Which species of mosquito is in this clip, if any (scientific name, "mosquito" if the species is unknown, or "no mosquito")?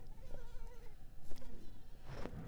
Mansonia uniformis